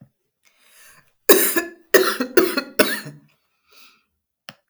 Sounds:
Cough